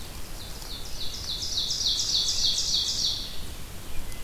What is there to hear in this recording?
Red-eyed Vireo, Ovenbird